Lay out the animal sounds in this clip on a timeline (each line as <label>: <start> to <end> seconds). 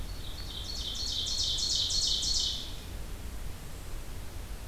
Ovenbird (Seiurus aurocapilla): 0.0 to 2.8 seconds